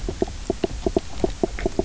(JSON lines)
{"label": "biophony, knock croak", "recorder": "SoundTrap 300"}